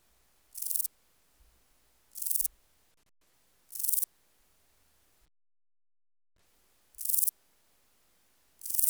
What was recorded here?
Euchorthippus declivus, an orthopteran